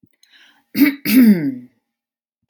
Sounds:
Throat clearing